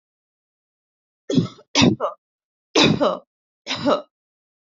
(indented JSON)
{
  "expert_labels": [
    {
      "quality": "good",
      "cough_type": "dry",
      "dyspnea": false,
      "wheezing": false,
      "stridor": false,
      "choking": false,
      "congestion": false,
      "nothing": true,
      "diagnosis": "healthy cough",
      "severity": "pseudocough/healthy cough"
    }
  ],
  "age": 22,
  "gender": "female",
  "respiratory_condition": false,
  "fever_muscle_pain": false,
  "status": "healthy"
}